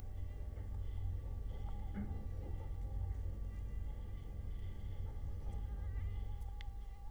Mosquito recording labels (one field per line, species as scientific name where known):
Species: Culex quinquefasciatus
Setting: cup